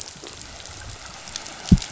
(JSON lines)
{"label": "biophony", "recorder": "SoundTrap 500"}